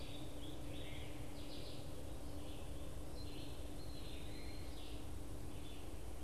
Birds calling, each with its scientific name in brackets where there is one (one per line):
Red-eyed Vireo (Vireo olivaceus)
Eastern Wood-Pewee (Contopus virens)